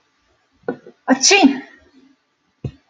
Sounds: Sneeze